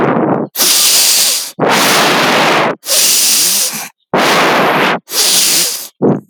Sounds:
Sniff